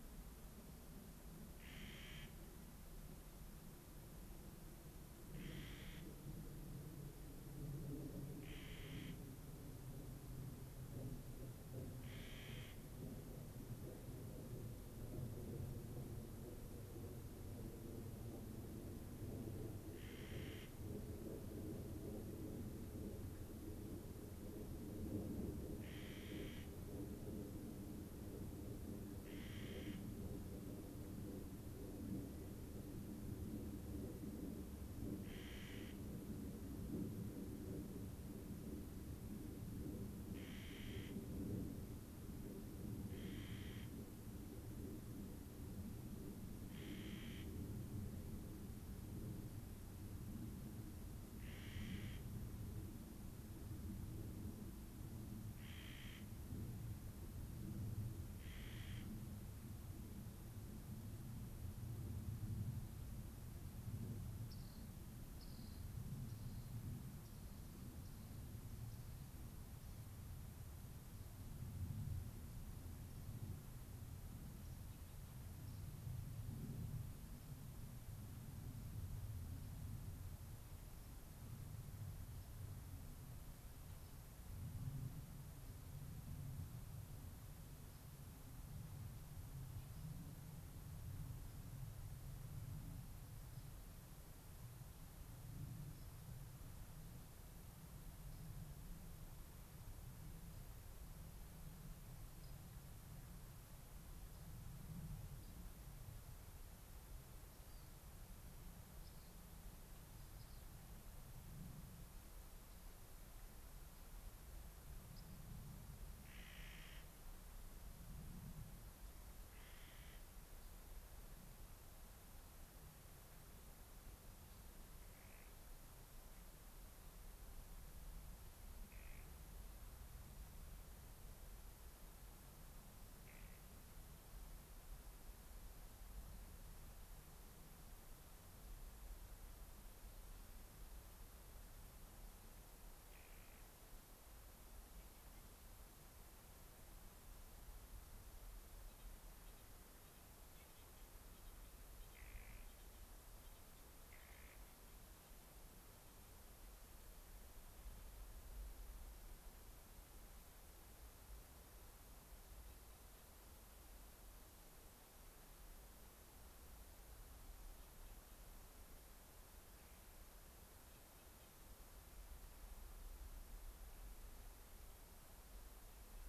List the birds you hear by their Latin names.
Nucifraga columbiana, Salpinctes obsoletus, unidentified bird